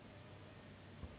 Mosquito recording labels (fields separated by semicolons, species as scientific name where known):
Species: Anopheles gambiae s.s.; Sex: female; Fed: unfed; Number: one; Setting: insect culture